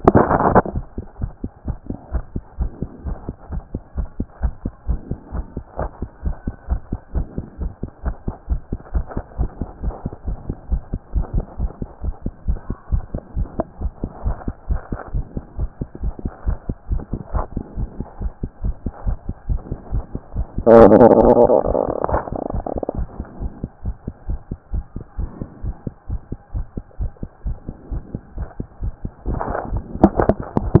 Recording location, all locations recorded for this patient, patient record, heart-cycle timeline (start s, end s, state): pulmonary valve (PV)
aortic valve (AV)+pulmonary valve (PV)+tricuspid valve (TV)+mitral valve (MV)
#Age: Child
#Sex: Female
#Height: 126.0 cm
#Weight: 29.5 kg
#Pregnancy status: False
#Murmur: Absent
#Murmur locations: nan
#Most audible location: nan
#Systolic murmur timing: nan
#Systolic murmur shape: nan
#Systolic murmur grading: nan
#Systolic murmur pitch: nan
#Systolic murmur quality: nan
#Diastolic murmur timing: nan
#Diastolic murmur shape: nan
#Diastolic murmur grading: nan
#Diastolic murmur pitch: nan
#Diastolic murmur quality: nan
#Outcome: Abnormal
#Campaign: 2014 screening campaign
0.00	1.20	unannotated
1.20	1.32	S1
1.32	1.42	systole
1.42	1.50	S2
1.50	1.66	diastole
1.66	1.76	S1
1.76	1.88	systole
1.88	1.96	S2
1.96	2.12	diastole
2.12	2.24	S1
2.24	2.34	systole
2.34	2.42	S2
2.42	2.58	diastole
2.58	2.70	S1
2.70	2.80	systole
2.80	2.90	S2
2.90	3.06	diastole
3.06	3.16	S1
3.16	3.26	systole
3.26	3.36	S2
3.36	3.52	diastole
3.52	3.62	S1
3.62	3.72	systole
3.72	3.82	S2
3.82	3.96	diastole
3.96	4.08	S1
4.08	4.18	systole
4.18	4.26	S2
4.26	4.42	diastole
4.42	4.54	S1
4.54	4.64	systole
4.64	4.72	S2
4.72	4.88	diastole
4.88	5.00	S1
5.00	5.10	systole
5.10	5.18	S2
5.18	5.34	diastole
5.34	5.44	S1
5.44	5.56	systole
5.56	5.64	S2
5.64	5.80	diastole
5.80	5.90	S1
5.90	6.00	systole
6.00	6.08	S2
6.08	6.24	diastole
6.24	6.36	S1
6.36	6.46	systole
6.46	6.54	S2
6.54	6.70	diastole
6.70	6.80	S1
6.80	6.90	systole
6.90	6.98	S2
6.98	7.14	diastole
7.14	7.26	S1
7.26	7.36	systole
7.36	7.46	S2
7.46	7.60	diastole
7.60	7.72	S1
7.72	7.82	systole
7.82	7.90	S2
7.90	8.04	diastole
8.04	8.16	S1
8.16	8.26	systole
8.26	8.34	S2
8.34	8.50	diastole
8.50	8.60	S1
8.60	8.70	systole
8.70	8.78	S2
8.78	8.94	diastole
8.94	9.04	S1
9.04	9.16	systole
9.16	9.24	S2
9.24	9.38	diastole
9.38	9.50	S1
9.50	9.60	systole
9.60	9.68	S2
9.68	9.82	diastole
9.82	9.94	S1
9.94	10.04	systole
10.04	10.12	S2
10.12	10.26	diastole
10.26	10.38	S1
10.38	10.48	systole
10.48	10.56	S2
10.56	10.70	diastole
10.70	10.82	S1
10.82	10.92	systole
10.92	11.00	S2
11.00	11.16	diastole
11.16	11.26	S1
11.26	11.34	systole
11.34	11.44	S2
11.44	11.60	diastole
11.60	11.70	S1
11.70	11.80	systole
11.80	11.88	S2
11.88	12.04	diastole
12.04	12.14	S1
12.14	12.24	systole
12.24	12.32	S2
12.32	12.48	diastole
12.48	12.58	S1
12.58	12.68	systole
12.68	12.76	S2
12.76	12.92	diastole
12.92	13.04	S1
13.04	13.12	systole
13.12	13.20	S2
13.20	13.36	diastole
13.36	13.48	S1
13.48	13.58	systole
13.58	13.66	S2
13.66	13.82	diastole
13.82	13.92	S1
13.92	14.02	systole
14.02	14.10	S2
14.10	14.24	diastole
14.24	14.36	S1
14.36	14.46	systole
14.46	14.54	S2
14.54	14.70	diastole
14.70	14.80	S1
14.80	14.90	systole
14.90	14.98	S2
14.98	15.14	diastole
15.14	15.24	S1
15.24	15.34	systole
15.34	15.44	S2
15.44	15.58	diastole
15.58	15.70	S1
15.70	15.80	systole
15.80	15.88	S2
15.88	16.02	diastole
16.02	16.14	S1
16.14	16.24	systole
16.24	16.32	S2
16.32	16.46	diastole
16.46	16.58	S1
16.58	16.68	systole
16.68	16.76	S2
16.76	16.90	diastole
16.90	17.02	S1
17.02	17.12	systole
17.12	17.20	S2
17.20	17.34	diastole
17.34	17.44	S1
17.44	17.54	systole
17.54	17.64	S2
17.64	17.78	diastole
17.78	17.88	S1
17.88	17.98	systole
17.98	18.06	S2
18.06	18.22	diastole
18.22	18.32	S1
18.32	18.42	systole
18.42	18.50	S2
18.50	18.64	diastole
18.64	18.74	S1
18.74	18.84	systole
18.84	18.92	S2
18.92	19.06	diastole
19.06	19.18	S1
19.18	19.26	systole
19.26	19.34	S2
19.34	19.48	diastole
19.48	19.60	S1
19.60	19.70	systole
19.70	19.78	S2
19.78	19.92	diastole
19.92	20.04	S1
20.04	20.12	systole
20.12	20.20	S2
20.20	20.36	diastole
20.36	30.80	unannotated